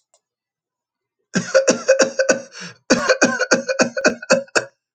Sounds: Cough